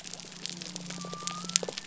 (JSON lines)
{"label": "biophony", "recorder": "SoundTrap 300"}